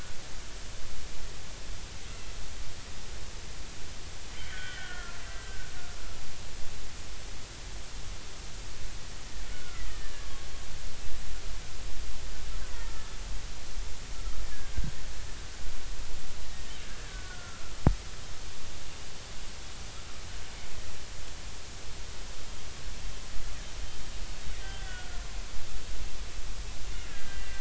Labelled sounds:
2.1	2.3	killer whale, Bigg's (transient), 2.6 to 2.8 kHz
4.5	5.7	killer whale, Bigg's (transient), 1.3 to 3.4 kHz
9.5	10.5	killer whale, Bigg's (transient), 1.1 to 2.2 kHz
13.7	14.7	killer whale, Bigg's (transient), 1.6 to 2.0 kHz
16.8	17.7	killer whale, Bigg's (transient), 1.2 to 1.8 kHz
24.6	25.2	killer whale, Bigg's (transient), 1.4 to 1.6 kHz
26.9	27.5	killer whale, Bigg's (transient), 1.5 to 2.9 kHz

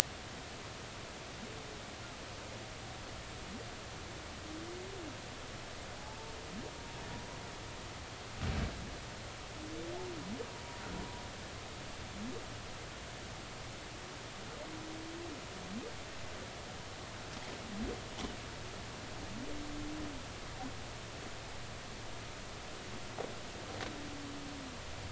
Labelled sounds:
6.0	6.4	humpback whale, 0.80 to 0.93 kHz

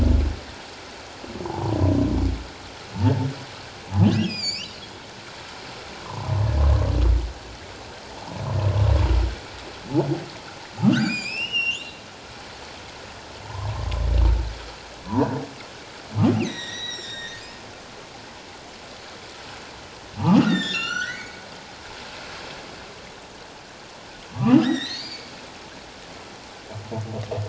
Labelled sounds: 1.4	1.8	humpback whale, 0.78 to 1.1 kHz
4.0	4.8	humpback whale, 2.2 to 7.6 kHz
6.0	6.3	humpback whale, 0.81 to 1.2 kHz
10.8	11.9	humpback whale, 1.1 to 7.6 kHz
13.4	13.9	humpback whale, 0.78 to 1.2 kHz
16.4	17.6	humpback whale, 1.5 to 7.6 kHz
20.2	21.5	humpback whale, 1.1 to 7.8 kHz
24.3	25.4	humpback whale, 1.1 to 6.2 kHz

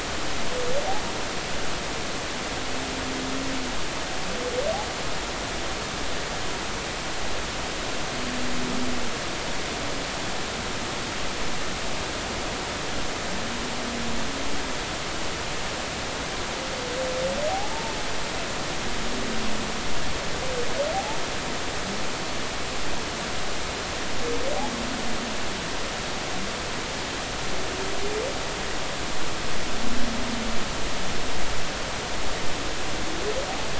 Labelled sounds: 20.9	21.2	humpback whale, 0.80 to 0.93 kHz

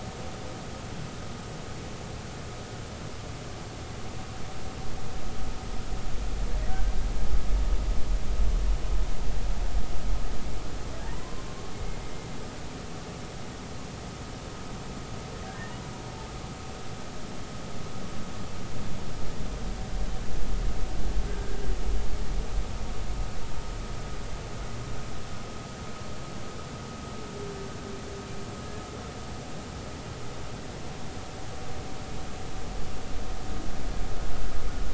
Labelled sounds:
6.7	6.9	humpback whale, 1.5 to 1.7 kHz
11.1	11.4	humpback whale, 0.90 to 1.1 kHz
12.0	12.3	humpback whale, 1.6 to 2.0 kHz
21.3	21.6	humpback whale, 1.5 to 1.7 kHz

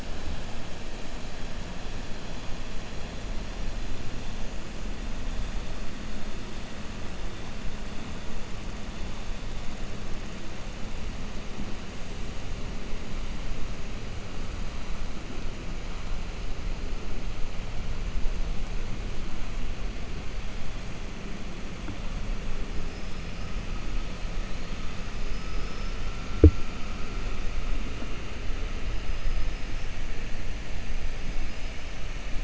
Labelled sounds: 29.1	29.9	killer whale, 5.0 to 5.6 kHz

